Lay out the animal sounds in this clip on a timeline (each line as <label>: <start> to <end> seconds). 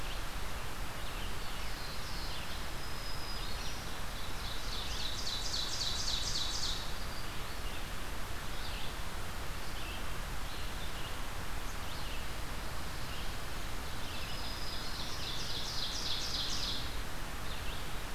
Red-eyed Vireo (Vireo olivaceus): 0.0 to 18.1 seconds
Black-throated Blue Warbler (Setophaga caerulescens): 0.9 to 2.5 seconds
Black-throated Green Warbler (Setophaga virens): 2.6 to 3.9 seconds
Ovenbird (Seiurus aurocapilla): 4.3 to 6.9 seconds
Black-throated Green Warbler (Setophaga virens): 14.1 to 15.3 seconds
Ovenbird (Seiurus aurocapilla): 14.9 to 16.9 seconds